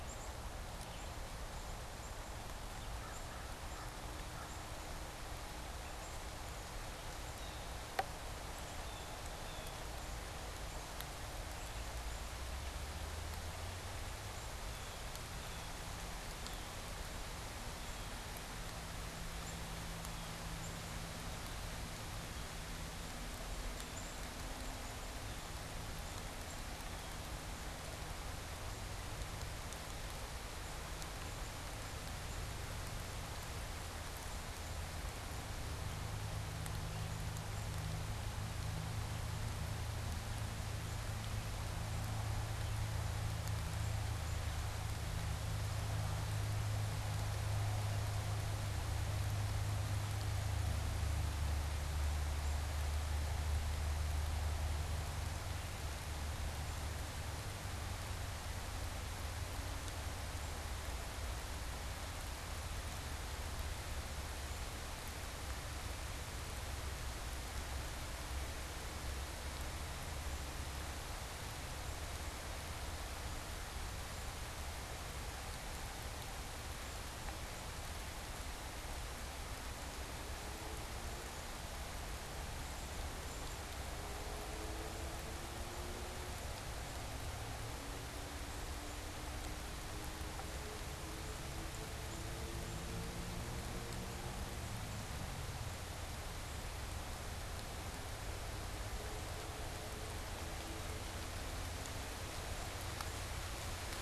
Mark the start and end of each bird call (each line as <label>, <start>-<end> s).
Black-capped Chickadee (Poecile atricapillus), 0.0-27.2 s
American Crow (Corvus brachyrhynchos), 2.5-4.8 s
Blue Jay (Cyanocitta cristata), 7.0-16.3 s
Black-capped Chickadee (Poecile atricapillus), 28.4-37.8 s
Black-capped Chickadee (Poecile atricapillus), 43.5-44.8 s
Black-capped Chickadee (Poecile atricapillus), 73.8-87.1 s
Black-capped Chickadee (Poecile atricapillus), 88.3-97.1 s